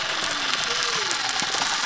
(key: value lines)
label: biophony
recorder: SoundTrap 300